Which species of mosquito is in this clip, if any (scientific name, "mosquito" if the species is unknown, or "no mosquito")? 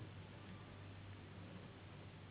Anopheles gambiae s.s.